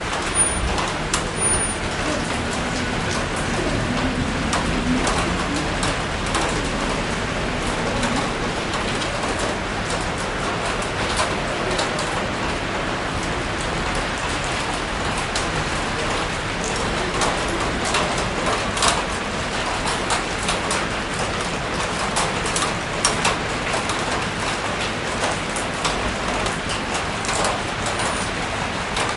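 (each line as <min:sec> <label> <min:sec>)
0:00.0 Many raindrops repeatedly fall on a metal sheet. 0:29.2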